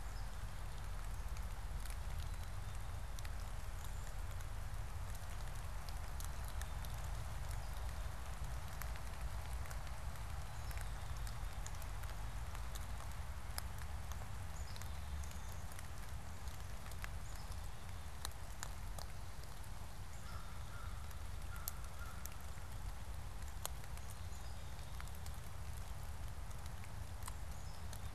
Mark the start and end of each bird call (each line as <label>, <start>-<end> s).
Black-capped Chickadee (Poecile atricapillus), 14.2-17.7 s
American Crow (Corvus brachyrhynchos), 20.0-22.6 s